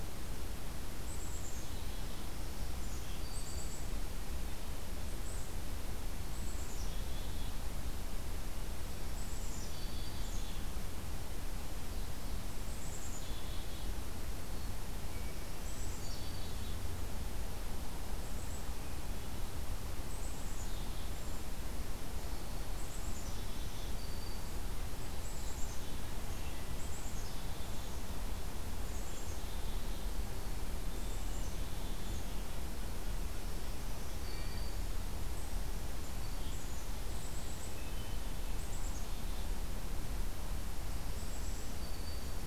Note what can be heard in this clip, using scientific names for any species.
Poecile atricapillus, Setophaga virens, Sitta canadensis, Catharus guttatus